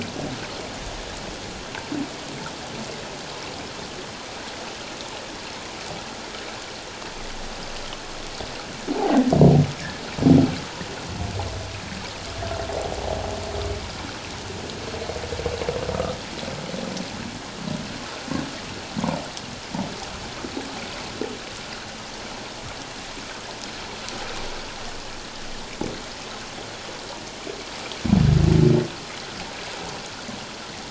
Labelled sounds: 8.9	9.2	humpback whale, 0.78 to 0.94 kHz

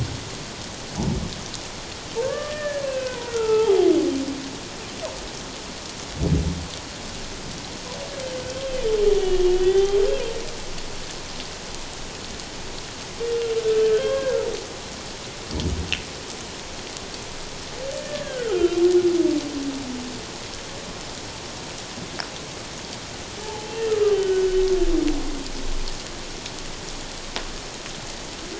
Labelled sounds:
2.2	3.9	humpback whale, 0.78 to 2.7 kHz
8.5	10.0	humpback whale, 0.78 to 3.6 kHz
13.8	14.5	humpback whale, 0.94 to 3.3 kHz
18.0	18.8	humpback whale, 1.2 to 3.2 kHz
23.4	23.9	humpback whale, 0.78 to 3.2 kHz
24.1	24.5	humpback whale, 1.4 to 3.1 kHz

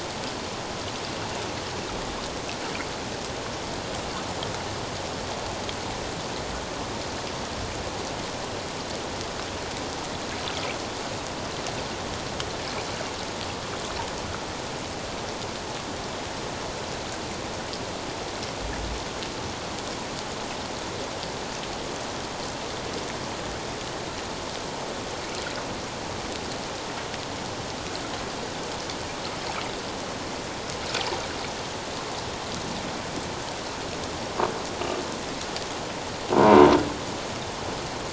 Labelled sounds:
36.4	36.7	croaking sound likely from a nearby submerged object, 0.91 to 1.1 kHz

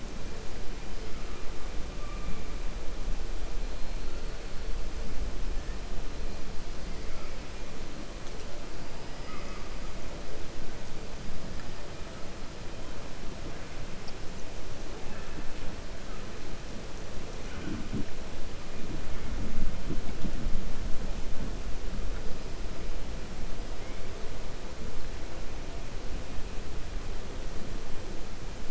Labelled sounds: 9.1	9.7	killer whale, 1.1 to 2.9 kHz

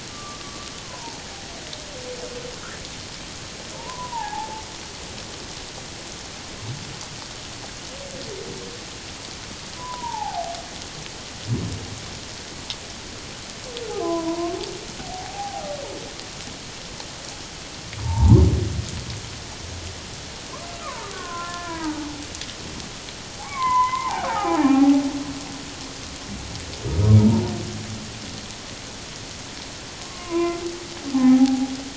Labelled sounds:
0.1	1.2	humpback whale, 0.81 to 1.2 kHz
3.7	4.6	humpback whale, 0.78 to 1.9 kHz
9.8	10.5	humpback whale, 0.78 to 1.1 kHz
13.9	14.6	humpback whale, 0.78 to 1.1 kHz
15.0	15.6	humpback whale, 0.78 to 0.88 kHz
18.0	18.5	humpback whale, 0.78 to 1.2 kHz
20.8	22.2	humpback whale, 0.81 to 2.5 kHz
23.4	24.6	humpback whale, 0.78 to 2.4 kHz
30.0	31.7	humpback whale, 0.78 to 1.2 kHz

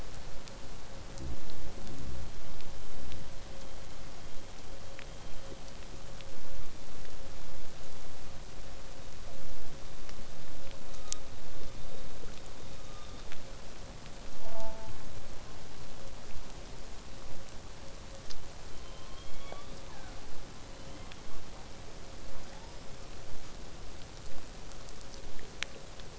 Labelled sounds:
14.4	15.1	killer whale, southern resident, J pod, call S04, 0.39 to 2.0 kHz
18.5	20.4	killer whale, southern resident, J pod, call S01, 0.35 to 6.2 kHz
20.5	21.6	killer whale, southern resident, 0.35 to 4.4 kHz
22.4	23.4	killer whale, southern resident, 0.70 to 6.9 kHz

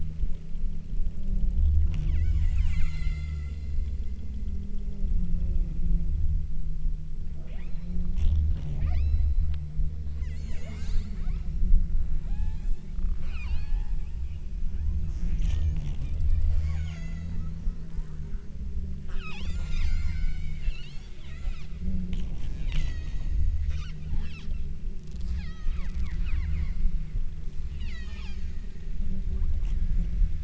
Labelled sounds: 1.9	4.8	killer whale, southern Alaska resident, 0.48 to 8.0 kHz
7.4	8.2	killer whale, southern Alaska resident, 0.50 to 5.8 kHz
8.6	9.6	killer whale, southern Alaska resident, 0.41 to 8.0 kHz
10.2	11.8	killer whale, southern Alaska resident, 0.46 to 8.0 kHz
12.3	14.2	killer whale, southern Alaska resident, 0.52 to 8.0 kHz
14.7	15.9	killer whale, southern Alaska resident, 0.59 to 8.0 kHz
16.4	17.7	killer whale, southern Alaska resident, 0.43 to 8.0 kHz
19.1	21.9	killer whale, southern Alaska resident, 0.55 to 8.0 kHz
22.5	23.5	killer whale, southern Alaska resident, 1.2 to 8.0 kHz
25.3	26.1	killer whale, southern Alaska resident, 0.66 to 8.0 kHz
27.9	28.6	killer whale, southern Alaska resident, 0.55 to 8.0 kHz

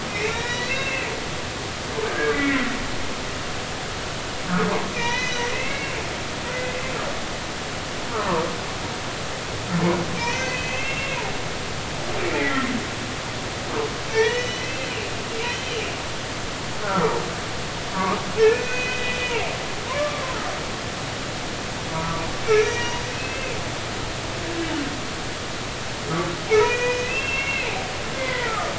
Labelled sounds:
0.1	1.1	humpback whale, 1.7 to 6.0 kHz
2.0	2.6	humpback whale, 1.3 to 2.3 kHz
4.9	5.9	humpback whale, 1.8 to 6.1 kHz
8.1	8.4	humpback whale, 0.86 to 1.4 kHz
10.2	11.2	humpback whale, 1.8 to 2.8 kHz
12.4	12.7	humpback whale, 1.8 to 2.1 kHz
14.1	15.1	humpback whale, 0.83 to 6.1 kHz
15.5	15.8	humpback whale, 2.8 to 3.2 kHz
16.8	17.2	humpback whale, 1.1 to 1.6 kHz
17.9	20.2	humpback whale, 0.90 to 3.0 kHz
21.9	23.6	humpback whale, 0.90 to 6.3 kHz
26.5	27.8	humpback whale, 0.80 to 2.8 kHz
28.2	28.7	humpback whale, 1.1 to 2.1 kHz

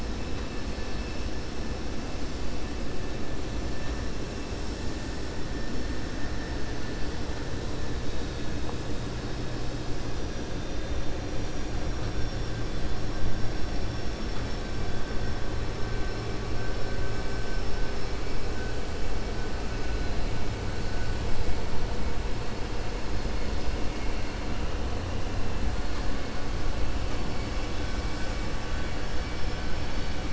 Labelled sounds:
11.3	12.5	vessel noise, 3.6 to 6.4 kHz
13.8	14.6	vessel noise, 4.5 to 6.3 kHz

